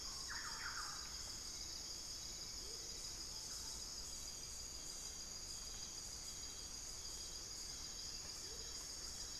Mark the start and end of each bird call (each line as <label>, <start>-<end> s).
Thrush-like Wren (Campylorhynchus turdinus), 0.0-1.6 s
Amazonian Motmot (Momotus momota), 0.0-2.9 s
Hauxwell's Thrush (Turdus hauxwelli), 1.8-9.4 s
Amazonian Motmot (Momotus momota), 8.2-8.8 s
Thrush-like Wren (Campylorhynchus turdinus), 8.3-9.4 s